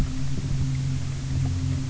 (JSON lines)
{"label": "anthrophony, boat engine", "recorder": "SoundTrap 300"}